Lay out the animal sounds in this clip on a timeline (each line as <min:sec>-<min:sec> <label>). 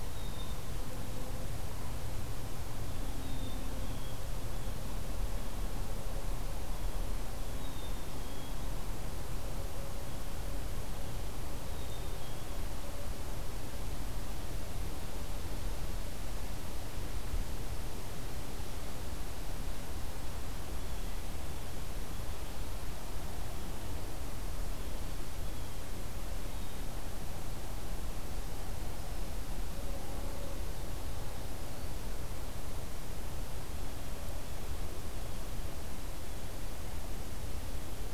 0:00.0-0:00.8 Black-capped Chickadee (Poecile atricapillus)
0:02.7-0:07.8 Blue Jay (Cyanocitta cristata)
0:03.2-0:04.2 Black-capped Chickadee (Poecile atricapillus)
0:07.6-0:08.6 Black-capped Chickadee (Poecile atricapillus)
0:11.6-0:12.7 Black-capped Chickadee (Poecile atricapillus)
0:20.7-0:22.5 Blue Jay (Cyanocitta cristata)
0:23.2-0:25.9 Blue Jay (Cyanocitta cristata)
0:26.4-0:27.0 Black-capped Chickadee (Poecile atricapillus)
0:31.4-0:32.1 Black-throated Green Warbler (Setophaga virens)